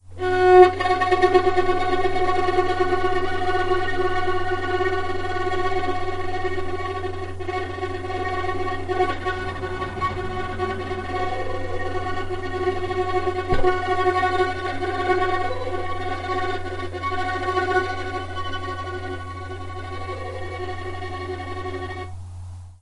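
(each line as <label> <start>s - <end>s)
The violin produces a fast vibrating sound. 0.0s - 22.8s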